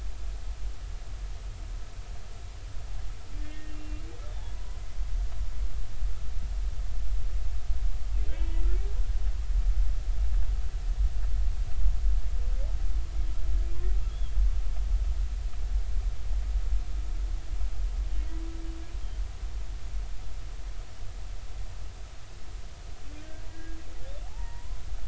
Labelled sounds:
3.4	4.0	humpback whale, 1.8 to 2.8 kHz
4.5	4.8	humpback whale, 0.93 to 1.1 kHz
8.4	8.6	humpback whale, 2.9 to 3.0 kHz
23.2	23.8	humpback whale, 1.5 to 1.7 kHz
24.2	24.8	humpback whale, 0.80 to 2.0 kHz

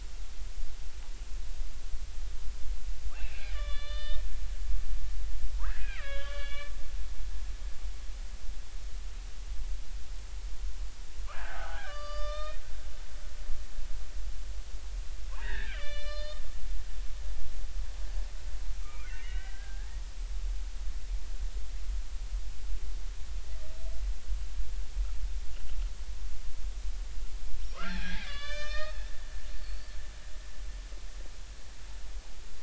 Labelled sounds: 3.1	4.2	killer whale, Bigg's (transient), 1.1 to 4.8 kHz
5.5	6.7	killer whale, Bigg's (transient), 0.86 to 4.6 kHz
11.3	12.7	killer whale, Bigg's (transient), 0.80 to 5.5 kHz
15.3	16.4	killer whale, Bigg's (transient), 0.83 to 6.0 kHz
18.8	19.9	killer whale, Bigg's (transient), 1.1 to 3.0 kHz
27.7	29.0	killer whale, Bigg's (transient), 0.99 to 6.8 kHz

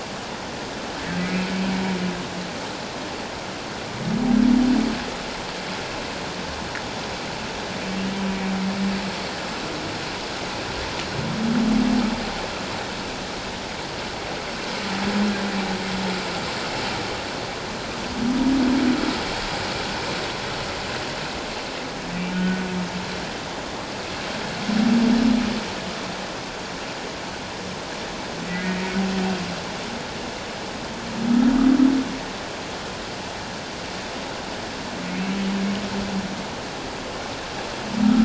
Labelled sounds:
22.3	22.6	humpback whale, 1.4 to 1.5 kHz
28.5	28.7	humpback whale, 1.9 to 2.1 kHz

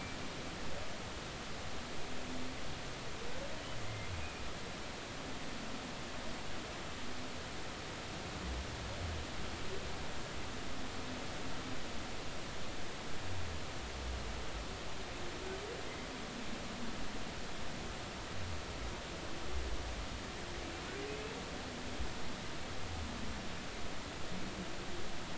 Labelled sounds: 3.8	4.1	humpback whale, 2.0 to 2.1 kHz
15.8	16.1	humpback whale, 2.0 to 2.1 kHz

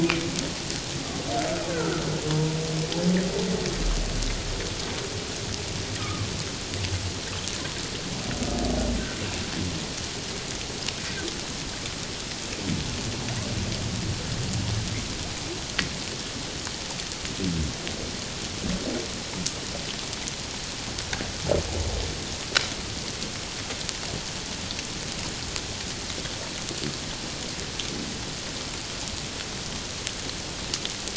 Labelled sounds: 1.7	2.6	humpback whale, 0.91 to 1.6 kHz
6.0	6.3	humpback whale, 1.0 to 1.3 kHz

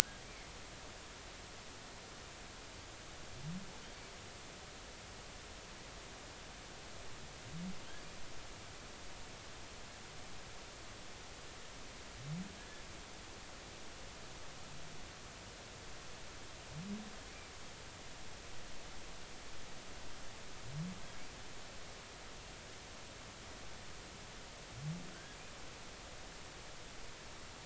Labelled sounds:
0.2	0.5	humpback whale, 2.1 to 2.4 kHz
12.6	12.8	humpback whale, 1.6 to 1.8 kHz
25.1	25.4	humpback whale, 1.4 to 1.7 kHz

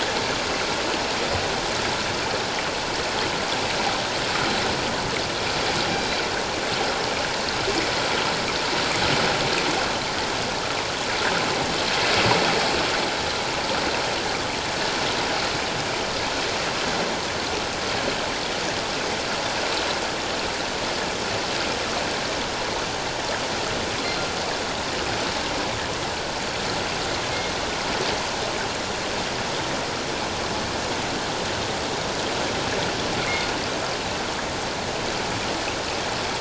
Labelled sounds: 33.2	33.5	killer whale, northern resident, G clan, 2.0 to 2.3 kHz

